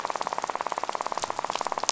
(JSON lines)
{"label": "biophony, rattle", "recorder": "SoundTrap 500"}